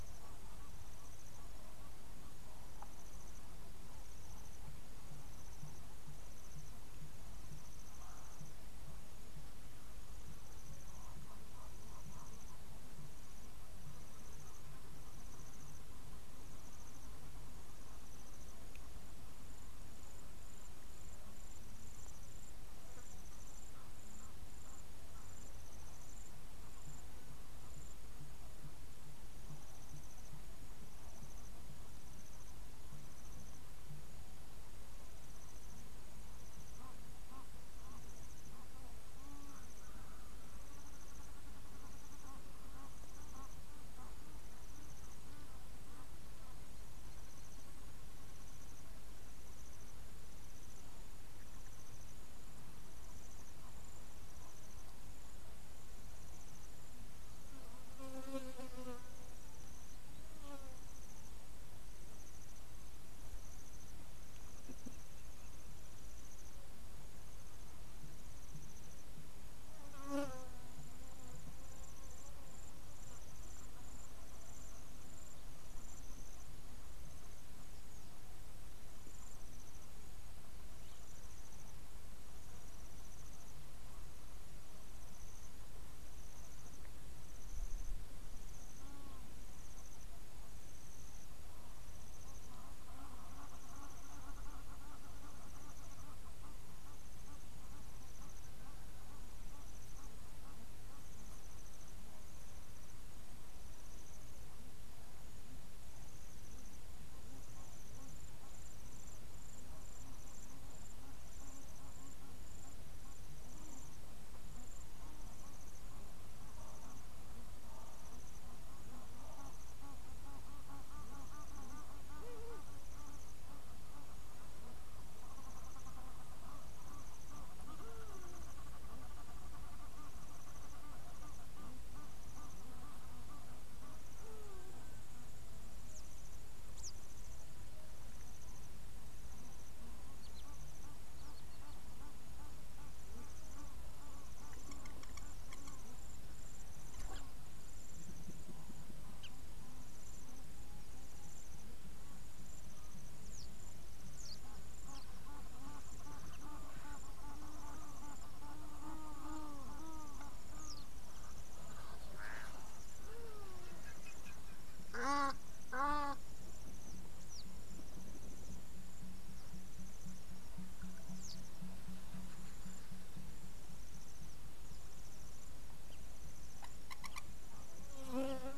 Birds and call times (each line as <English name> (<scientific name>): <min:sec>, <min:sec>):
Egyptian Goose (Alopochen aegyptiaca): 0:11.6, 0:39.3, 1:34.5, 2:00.3, 2:37.3, 2:45.2
Hadada Ibis (Bostrychia hagedash): 2:02.4, 2:08.1, 2:14.5
African Pipit (Anthus cinnamomeus): 2:16.9
Long-toed Lapwing (Vanellus crassirostris): 2:57.0